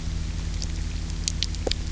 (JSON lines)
{"label": "anthrophony, boat engine", "recorder": "SoundTrap 300"}